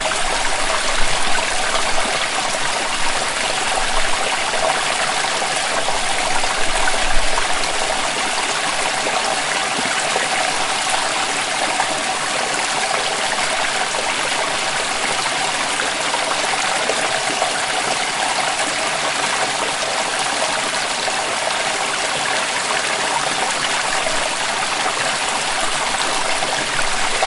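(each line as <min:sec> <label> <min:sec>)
0:00.0 Water flowing. 0:27.3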